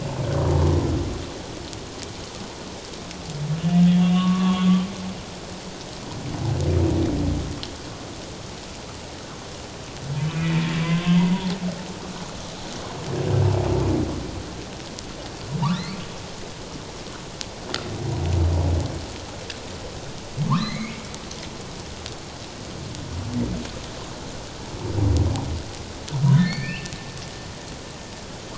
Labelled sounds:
3.9	4.7	humpback whale, 0.88 to 3.4 kHz
10.3	11.6	humpback whale, 0.78 to 2.5 kHz
15.7	16.0	humpback whale, 1.7 to 4.6 kHz
20.5	21.1	humpback whale, 0.84 to 4.2 kHz
26.4	26.9	humpback whale, 1.7 to 4.7 kHz

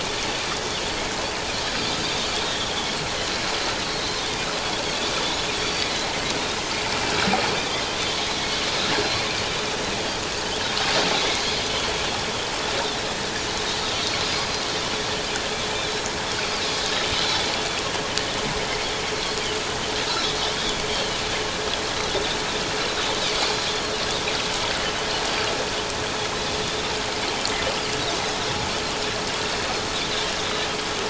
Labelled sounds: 2.5	2.7	Pacific white-sided dolphin, 3.2 to 3.6 kHz
5.6	5.9	Pacific white-sided dolphin, 4.4 to 4.7 kHz
7.6	8.2	Pacific white-sided dolphin, 3.0 to 3.8 kHz
11.3	11.7	Pacific white-sided dolphin, 4.2 to 4.5 kHz
14.2	14.6	Pacific white-sided dolphin, 4.8 to 5.1 kHz
20.0	20.3	Pacific white-sided dolphin, 3.7 to 4.1 kHz
20.9	21.2	Pacific white-sided dolphin, 2.8 to 3.3 kHz

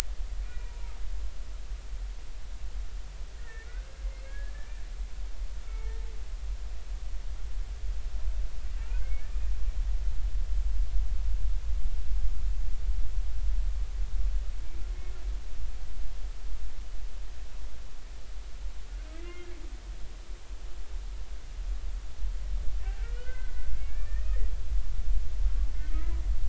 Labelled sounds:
0.4	0.7	humpback whale, 1.4 to 2.5 kHz
3.3	4.5	humpback whale, 1.4 to 2.4 kHz
5.7	6.0	humpback whale, 0.83 to 2.3 kHz
8.8	9.1	humpback whale, 1.3 to 1.6 kHz
10.0	10.3	humpback whale, 2.0 to 2.4 kHz
19.1	19.5	humpback whale, 1.3 to 2.2 kHz
23.0	24.1	humpback whale, 1.3 to 2.6 kHz
25.7	26.2	humpback whale, 1.2 to 2.4 kHz

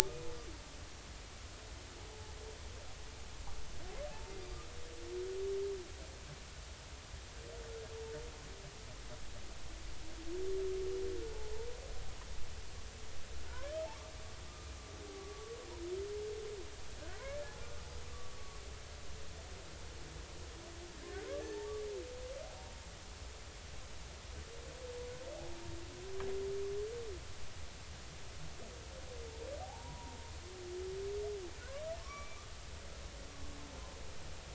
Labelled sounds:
2.1	2.3	humpback whale, 0.80 to 0.93 kHz
4.1	4.6	humpback whale, 0.80 to 4.8 kHz
11.3	11.7	humpback whale, 0.83 to 0.99 kHz
13.5	13.7	humpback whale, 0.90 to 1.2 kHz
15.1	15.5	humpback whale, 1.1 to 1.2 kHz
17.2	17.6	humpback whale, 1.6 to 1.8 kHz
18.1	18.6	humpback whale, 1.1 to 1.2 kHz
21.4	21.7	humpback whale, 1.7 to 2.0 kHz
29.6	30.2	humpback whale, 0.80 to 1.0 kHz
32.0	32.4	humpback whale, 1.0 to 2.4 kHz

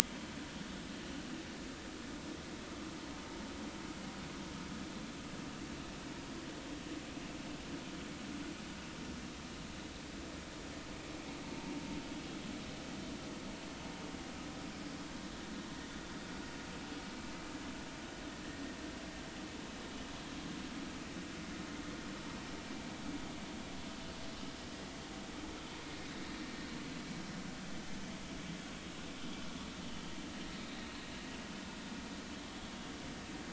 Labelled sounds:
30.6	30.8	vessel noise, 3.6 to 3.9 kHz

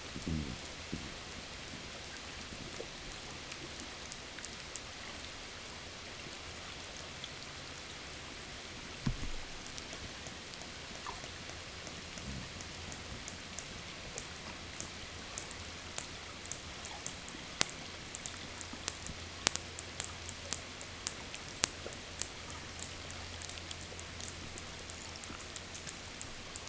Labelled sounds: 9.3	26.6	killer whale, 1.2 to 8.0 kHz

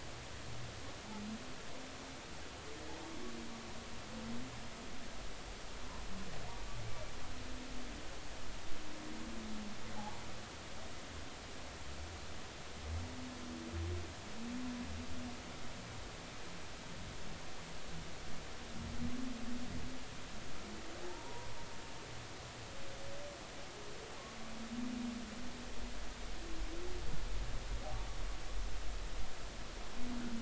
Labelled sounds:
21.0	21.5	humpback whale, 0.80 to 1.0 kHz

